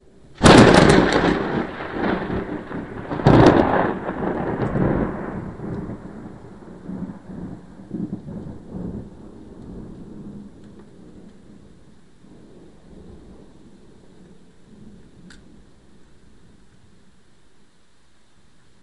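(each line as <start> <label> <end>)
0.3 Thunder rumbles loudly and gradually fades away with a slight echo. 3.2
3.1 Thunder rumbles muffled in the distance, gradually fading away with a slight echo. 6.3
6.3 Thunder rumbles in the distance and gradually fades away. 14.7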